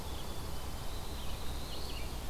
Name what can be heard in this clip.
Black-capped Chickadee, Red-eyed Vireo, Pine Warbler, Black-throated Blue Warbler